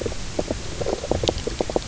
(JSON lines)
{"label": "biophony, knock croak", "recorder": "SoundTrap 300"}